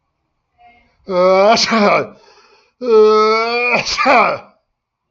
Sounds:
Sneeze